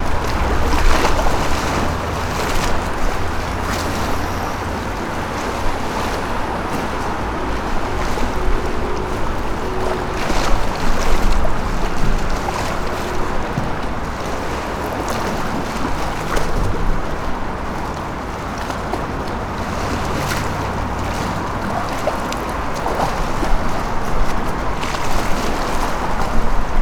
What is flowing?
water